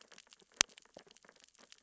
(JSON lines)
{"label": "biophony, sea urchins (Echinidae)", "recorder": "SoundTrap 600 or HydroMoth"}